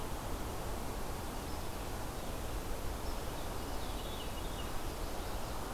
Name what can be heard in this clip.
Veery, Chestnut-sided Warbler